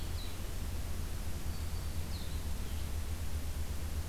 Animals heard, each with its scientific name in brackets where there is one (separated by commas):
Blue-headed Vireo (Vireo solitarius), Black-throated Green Warbler (Setophaga virens)